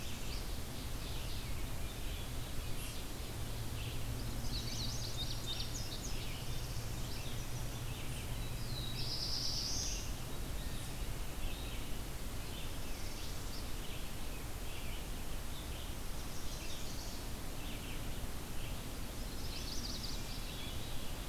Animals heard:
Black-throated Blue Warbler (Setophaga caerulescens)
Indigo Bunting (Passerina cyanea)
Red-eyed Vireo (Vireo olivaceus)
Chestnut-sided Warbler (Setophaga pensylvanica)
Ovenbird (Seiurus aurocapilla)
Northern Parula (Setophaga americana)

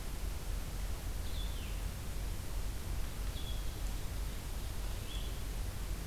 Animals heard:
Blue-headed Vireo (Vireo solitarius)

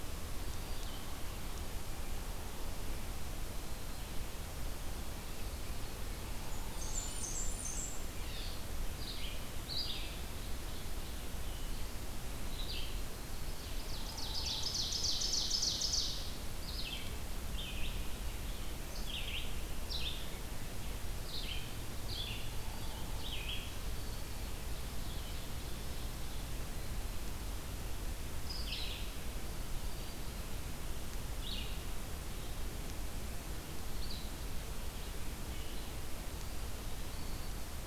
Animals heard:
Ovenbird (Seiurus aurocapilla)
Black-throated Green Warbler (Setophaga virens)
Black-and-white Warbler (Mniotilta varia)
Red-eyed Vireo (Vireo olivaceus)

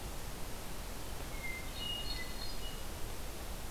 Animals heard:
Hermit Thrush (Catharus guttatus)

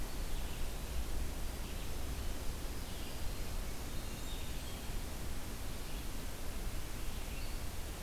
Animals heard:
Red-eyed Vireo (Vireo olivaceus)
Black-throated Green Warbler (Setophaga virens)
Hermit Thrush (Catharus guttatus)

